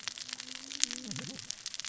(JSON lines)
{"label": "biophony, cascading saw", "recorder": "SoundTrap 600 or HydroMoth"}